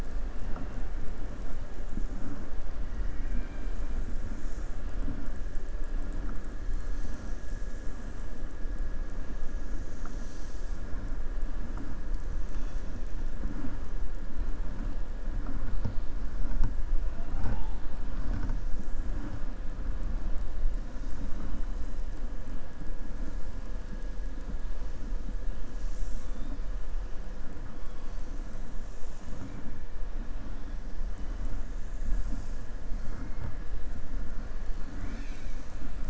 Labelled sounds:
3.0	3.8	killer whale, southern resident, 1.6 to 4.0 kHz
34.9	35.9	killer whale, southern resident, 1.1 to 7.4 kHz

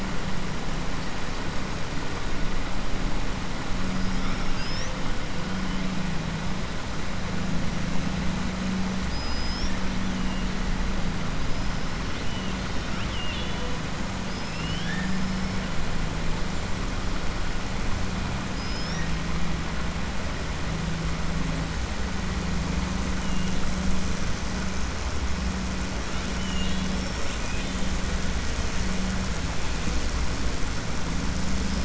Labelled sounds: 9.0	9.8	killer whale, 3.2 to 6.4 kHz
12.2	13.6	killer whale, 2.3 to 4.7 kHz
14.2	15.2	killer whale, 1.6 to 5.7 kHz
26.3	26.9	killer whale, 2.8 to 4.3 kHz

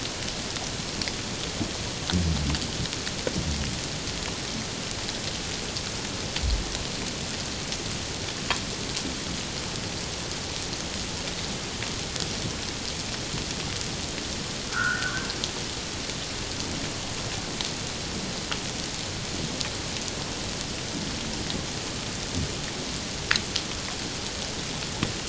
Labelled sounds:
14.7	15.3	humpback whale, 1.2 to 1.7 kHz

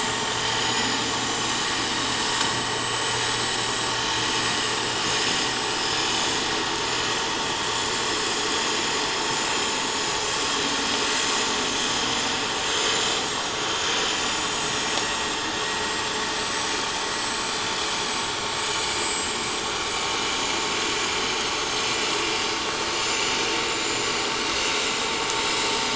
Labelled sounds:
0.4	3.4	vessel noise, 6.0 to 8.0 kHz
5.1	6.3	vessel noise, 6.8 to 8.0 kHz
6.8	8.2	vessel noise, 6.9 to 7.4 kHz
8.5	11.1	vessel noise, 6.1 to 8.0 kHz
11.8	13.4	vessel noise, 6.7 to 7.2 kHz
13.8	16.8	vessel noise, 5.7 to 8.0 kHz
17.1	17.4	vessel noise, 7.7 to 7.8 kHz
17.9	19.5	vessel noise, 6.7 to 7.8 kHz
19.9	20.7	vessel noise, 6.8 to 7.9 kHz
21.0	22.1	vessel noise, 7.2 to 8.0 kHz
22.9	24.0	vessel noise, 3.7 to 8.0 kHz
25.7	25.9	vessel noise, 5.9 to 6.0 kHz

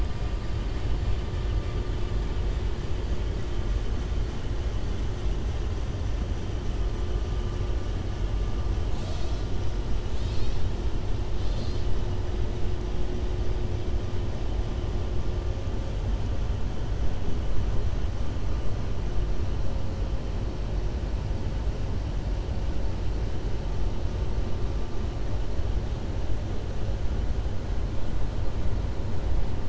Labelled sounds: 11.3	11.9	killer whale, southern resident, 3.0 to 5.1 kHz

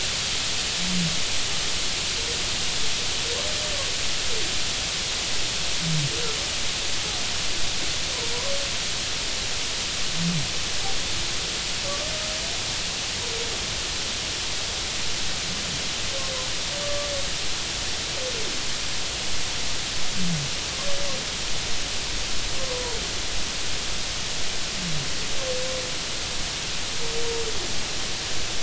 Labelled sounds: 16.8	17.1	humpback whale, 1.1 to 1.2 kHz
22.6	22.8	humpback whale, 0.96 to 1.1 kHz

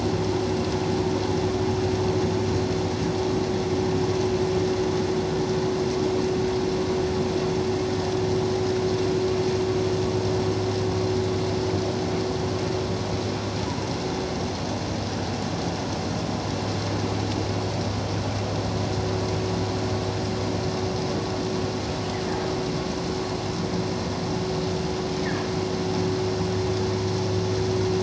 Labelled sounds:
25.2	25.5	humpback whale, 1.6 to 2.0 kHz

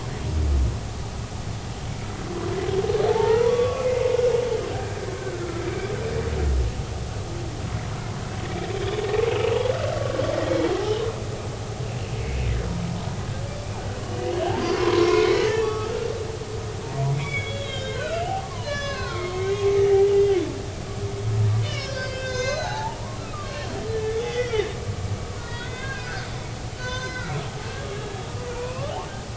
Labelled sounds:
3.1	3.9	humpback whale, 0.80 to 3.5 kHz
4.7	5.9	humpback whale, 1.2 to 2.4 kHz
9.3	9.6	humpback whale, 2.5 to 3.0 kHz
10.8	11.0	humpback whale, 0.80 to 0.90 kHz
12.2	12.5	humpback whale, 2.0 to 2.3 kHz
14.8	16.0	humpback whale, 0.96 to 2.4 kHz
16.8	20.4	humpback whale, 0.80 to 7.0 kHz
21.6	23.8	humpback whale, 0.80 to 6.8 kHz
24.2	24.6	humpback whale, 1.8 to 3.6 kHz
25.4	28.2	humpback whale, 0.90 to 6.2 kHz
28.5	28.9	humpback whale, 0.90 to 2.8 kHz

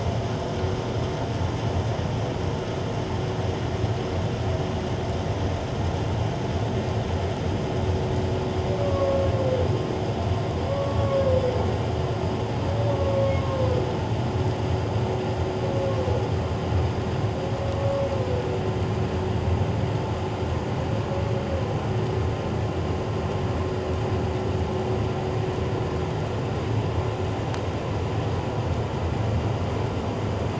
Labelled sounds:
8.8	9.2	humpback whale, 1.0 to 1.2 kHz
10.7	11.2	humpback whale, 1.1 to 1.2 kHz

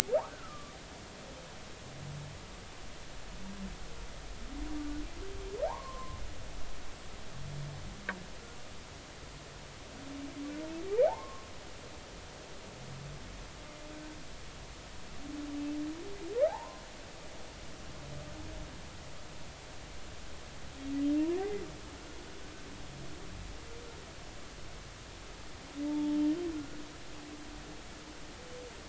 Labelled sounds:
0.3	0.8	humpback whale, 1.1 to 1.6 kHz
5.7	6.2	humpback whale, 0.80 to 1.2 kHz
10.9	11.5	humpback whale, 0.80 to 2.4 kHz
16.5	16.8	humpback whale, 0.80 to 1.1 kHz
21.4	21.6	humpback whale, 1.8 to 2.1 kHz
25.9	26.8	humpback whale, 0.83 to 1.5 kHz

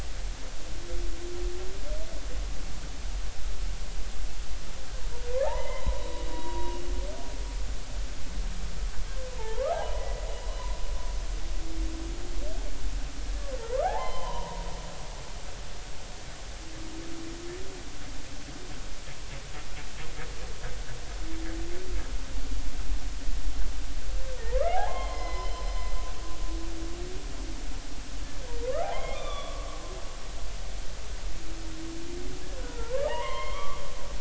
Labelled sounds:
5.4	6.8	humpback whale, 0.80 to 3.9 kHz
9.4	10.2	humpback whale, 0.80 to 2.1 kHz
13.8	14.6	humpback whale, 0.80 to 3.2 kHz
24.4	25.6	humpback whale, 0.80 to 5.2 kHz
28.8	29.8	humpback whale, 0.80 to 3.6 kHz
32.6	33.8	humpback whale, 0.80 to 4.3 kHz

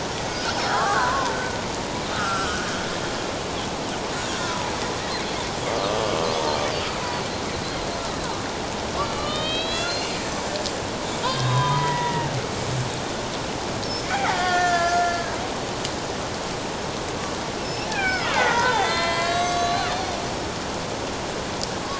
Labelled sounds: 0.3	1.4	killer whale, Bigg's (transient), 0.88 to 5.5 kHz
2.1	2.7	killer whale, Bigg's (transient), 1.2 to 1.6 kHz
4.3	4.7	killer whale, Bigg's (transient), 0.81 to 1.6 kHz
9.1	10.1	killer whale, Bigg's (transient), 1.1 to 4.3 kHz
11.2	12.3	killer whale, Bigg's (transient), 0.84 to 3.8 kHz
13.8	15.4	killer whale, Bigg's (transient), 0.78 to 6.7 kHz
17.6	20.2	killer whale, Bigg's (transient), 0.78 to 7.8 kHz

